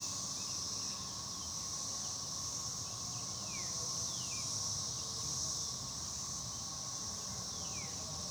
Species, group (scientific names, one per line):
Magicicada tredecim
Cicadidae